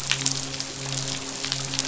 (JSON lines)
{"label": "biophony, midshipman", "recorder": "SoundTrap 500"}